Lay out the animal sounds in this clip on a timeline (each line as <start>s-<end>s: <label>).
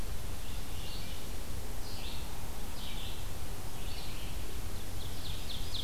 0.0s-5.8s: Red-eyed Vireo (Vireo olivaceus)
4.8s-5.8s: Ovenbird (Seiurus aurocapilla)